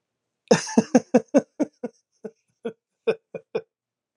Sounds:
Laughter